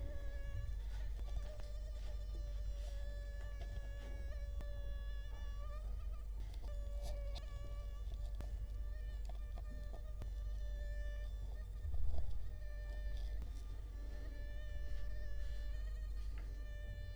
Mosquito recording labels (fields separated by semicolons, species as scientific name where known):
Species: Culex quinquefasciatus; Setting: cup